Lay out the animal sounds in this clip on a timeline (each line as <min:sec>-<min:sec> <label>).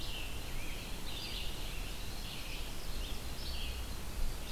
0:00.0-0:03.2 Scarlet Tanager (Piranga olivacea)
0:00.0-0:04.5 Red-eyed Vireo (Vireo olivaceus)
0:01.6-0:03.3 Ovenbird (Seiurus aurocapilla)